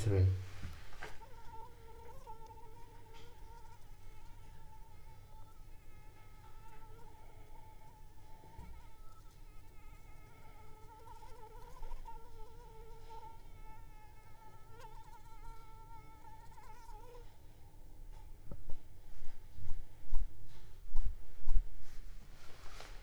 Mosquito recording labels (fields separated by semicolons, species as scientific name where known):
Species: Anopheles arabiensis; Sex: female; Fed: unfed; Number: one; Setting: cup